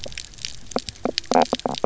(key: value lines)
label: biophony, knock croak
recorder: SoundTrap 300